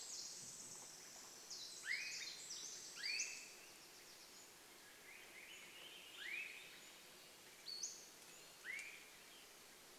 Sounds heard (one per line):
woodpecker drumming
Pacific-slope Flycatcher call
Swainson's Thrush song
Swainson's Thrush call
Pacific Wren song